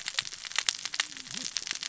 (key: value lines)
label: biophony, cascading saw
recorder: SoundTrap 600 or HydroMoth